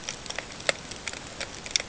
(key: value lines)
label: ambient
recorder: HydroMoth